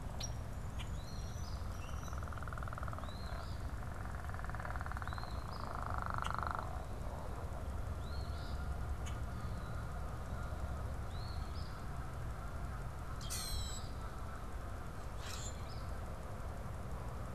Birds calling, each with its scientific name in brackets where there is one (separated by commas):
unidentified bird, Eastern Phoebe (Sayornis phoebe), Common Grackle (Quiscalus quiscula), Red-winged Blackbird (Agelaius phoeniceus)